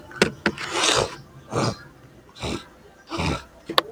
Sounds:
Sniff